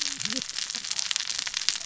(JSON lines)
{"label": "biophony, cascading saw", "recorder": "SoundTrap 600 or HydroMoth"}